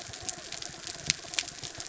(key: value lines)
label: biophony
recorder: SoundTrap 300

label: anthrophony, mechanical
recorder: SoundTrap 300